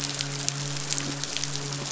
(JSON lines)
{"label": "biophony, midshipman", "recorder": "SoundTrap 500"}